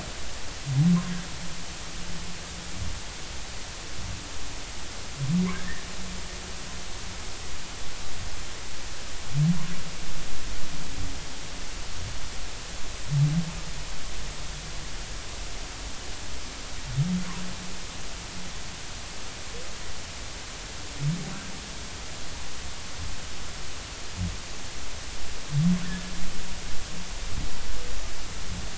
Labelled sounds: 5.5	5.9	humpback whale, 1.5 to 2.0 kHz

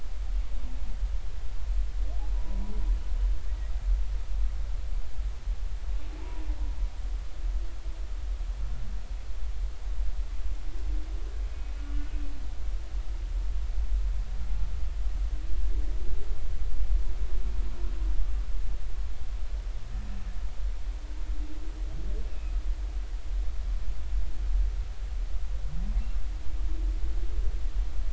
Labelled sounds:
2.3	2.6	humpback whale, 0.93 to 1.0 kHz
6.2	6.5	humpback whale, 0.83 to 1.0 kHz
11.8	12.0	humpback whale, 2.8 to 2.9 kHz
22.3	22.5	humpback whale, 2.5 to 2.8 kHz

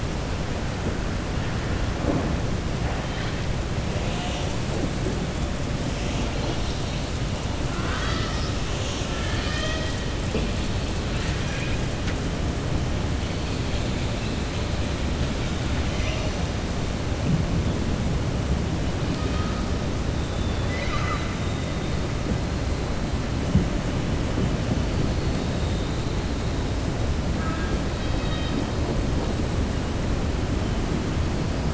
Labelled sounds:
11.1	11.8	killer whale, southern resident, 1.6 to 3.2 kHz
20.2	21.3	killer whale, southern resident, 1.1 to 6.1 kHz

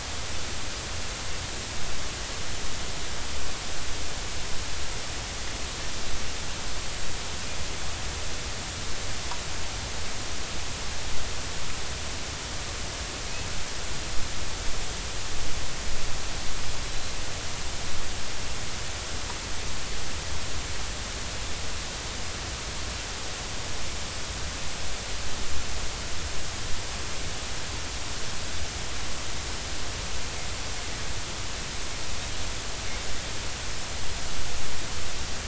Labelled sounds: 16.9	17.1	Pacific white-sided dolphin, 4.0 to 4.1 kHz

